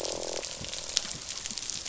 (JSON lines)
{"label": "biophony, croak", "recorder": "SoundTrap 500"}